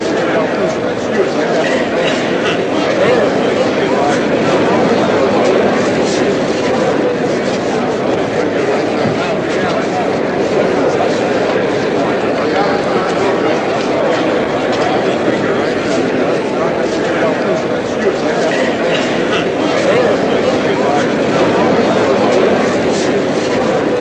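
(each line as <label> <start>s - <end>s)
Indistinct murmuring of a large indoor crowd. 0.0s - 24.0s
A person coughs in the distance. 1.6s - 2.7s
A person coughs in the distance. 18.3s - 19.5s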